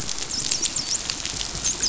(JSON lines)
{"label": "biophony, dolphin", "recorder": "SoundTrap 500"}